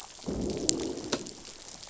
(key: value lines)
label: biophony, growl
recorder: SoundTrap 500